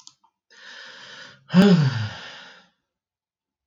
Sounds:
Sigh